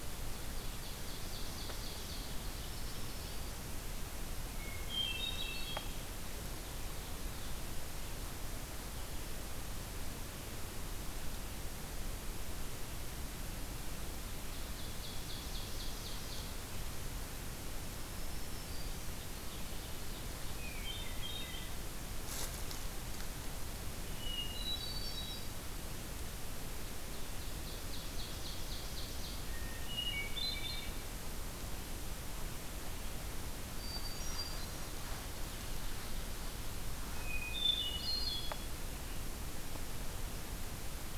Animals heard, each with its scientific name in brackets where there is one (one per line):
Ovenbird (Seiurus aurocapilla)
Hermit Thrush (Catharus guttatus)
Black-throated Green Warbler (Setophaga virens)